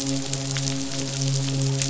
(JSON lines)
{"label": "biophony, midshipman", "recorder": "SoundTrap 500"}